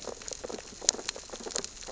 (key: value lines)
label: biophony, sea urchins (Echinidae)
recorder: SoundTrap 600 or HydroMoth